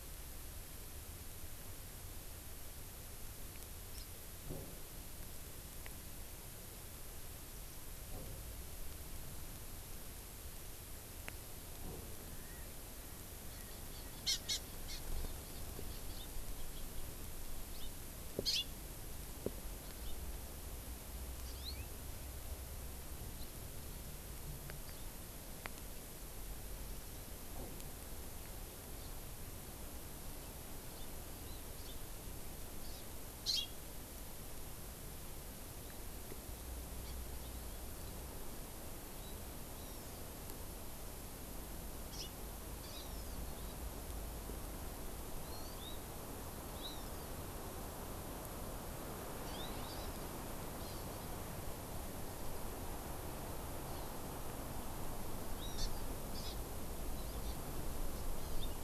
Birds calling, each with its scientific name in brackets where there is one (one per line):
Hawaii Amakihi (Chlorodrepanis virens)
Hawaiian Hawk (Buteo solitarius)